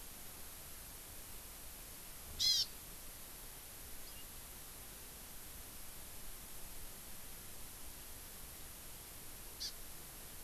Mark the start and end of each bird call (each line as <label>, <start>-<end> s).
Hawaii Amakihi (Chlorodrepanis virens), 2.4-2.7 s
House Finch (Haemorhous mexicanus), 4.1-4.3 s
Hawaii Amakihi (Chlorodrepanis virens), 9.6-9.8 s